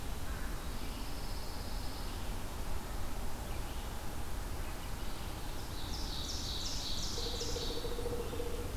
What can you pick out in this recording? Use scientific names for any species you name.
Corvus brachyrhynchos, Setophaga pinus, Seiurus aurocapilla, Dryocopus pileatus